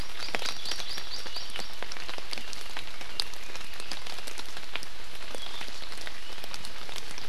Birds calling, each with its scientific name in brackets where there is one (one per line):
Hawaii Amakihi (Chlorodrepanis virens)